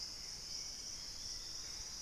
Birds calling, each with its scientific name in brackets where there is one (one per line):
Hauxwell's Thrush (Turdus hauxwelli)
Dusky-throated Antshrike (Thamnomanes ardesiacus)
Thrush-like Wren (Campylorhynchus turdinus)